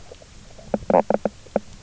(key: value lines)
label: biophony, knock croak
recorder: SoundTrap 300